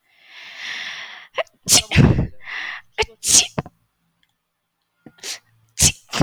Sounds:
Sneeze